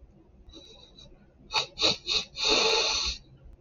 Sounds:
Sniff